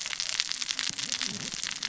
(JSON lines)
{"label": "biophony, cascading saw", "recorder": "SoundTrap 600 or HydroMoth"}